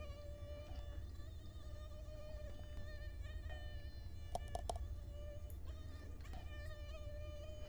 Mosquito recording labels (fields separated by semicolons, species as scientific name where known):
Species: Culex quinquefasciatus; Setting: cup